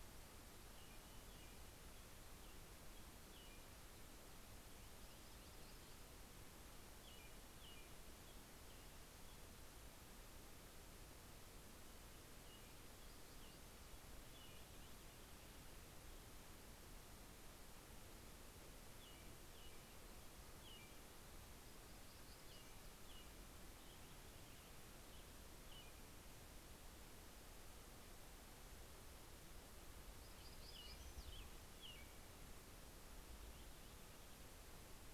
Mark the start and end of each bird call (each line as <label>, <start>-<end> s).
American Robin (Turdus migratorius), 0.5-4.0 s
American Robin (Turdus migratorius), 6.9-9.8 s
American Robin (Turdus migratorius), 11.6-26.9 s
Black-throated Gray Warbler (Setophaga nigrescens), 20.8-23.4 s
Purple Finch (Haemorhous purpureus), 23.1-25.7 s
Black-throated Gray Warbler (Setophaga nigrescens), 29.6-31.8 s
American Robin (Turdus migratorius), 30.1-32.5 s
Purple Finch (Haemorhous purpureus), 32.9-34.8 s